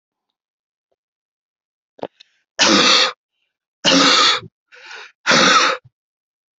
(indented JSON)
{
  "expert_labels": [
    {
      "quality": "poor",
      "cough_type": "dry",
      "dyspnea": true,
      "wheezing": false,
      "stridor": false,
      "choking": false,
      "congestion": false,
      "nothing": false,
      "diagnosis": "obstructive lung disease",
      "severity": "mild"
    }
  ],
  "age": 24,
  "gender": "male",
  "respiratory_condition": true,
  "fever_muscle_pain": false,
  "status": "symptomatic"
}